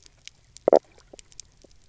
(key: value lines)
label: biophony, knock croak
recorder: SoundTrap 300